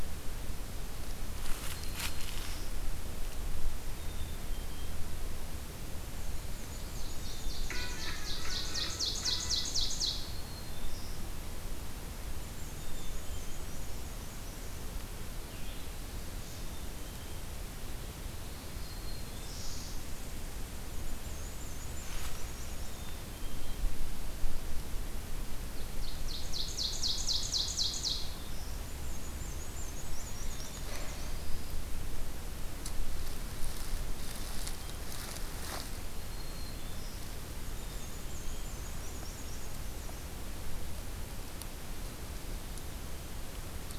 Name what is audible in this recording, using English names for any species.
Black-throated Green Warbler, Black-capped Chickadee, Black-and-white Warbler, Ovenbird, Red-eyed Vireo, Black-throated Blue Warbler